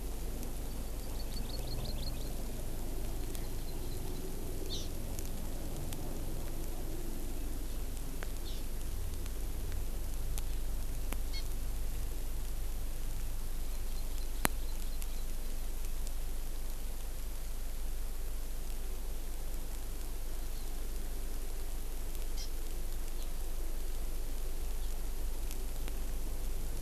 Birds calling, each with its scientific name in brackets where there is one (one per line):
Hawaii Amakihi (Chlorodrepanis virens)